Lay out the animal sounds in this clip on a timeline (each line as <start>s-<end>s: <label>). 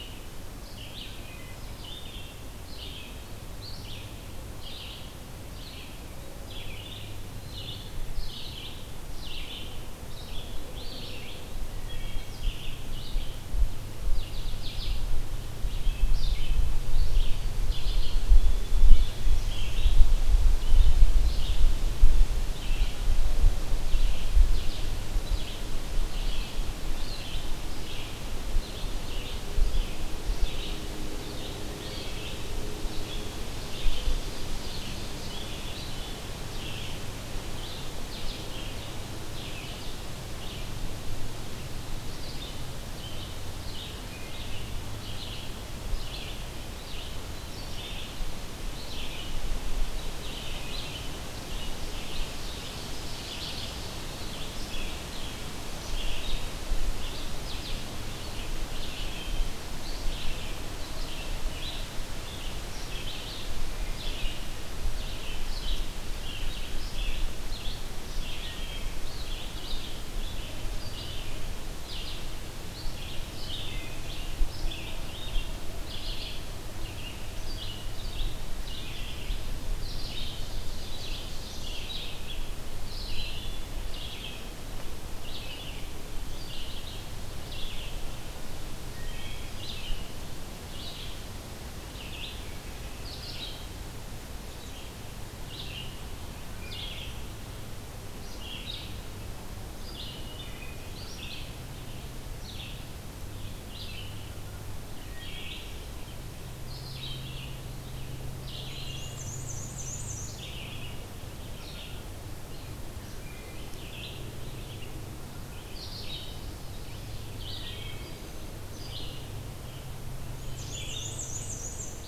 0.0s-13.4s: Red-eyed Vireo (Vireo olivaceus)
1.1s-1.7s: Wood Thrush (Hylocichla mustelina)
11.8s-12.6s: Wood Thrush (Hylocichla mustelina)
13.9s-15.2s: unidentified call
16.1s-40.9s: Red-eyed Vireo (Vireo olivaceus)
42.1s-122.1s: Red-eyed Vireo (Vireo olivaceus)
44.0s-44.7s: Wood Thrush (Hylocichla mustelina)
58.8s-59.6s: Wood Thrush (Hylocichla mustelina)
68.4s-69.1s: Wood Thrush (Hylocichla mustelina)
80.0s-82.0s: Ovenbird (Seiurus aurocapilla)
88.6s-89.7s: Wood Thrush (Hylocichla mustelina)
100.0s-100.9s: Wood Thrush (Hylocichla mustelina)
108.6s-110.5s: Black-and-white Warbler (Mniotilta varia)
117.6s-118.2s: Wood Thrush (Hylocichla mustelina)
120.3s-122.1s: Black-and-white Warbler (Mniotilta varia)